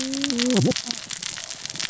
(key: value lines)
label: biophony, cascading saw
recorder: SoundTrap 600 or HydroMoth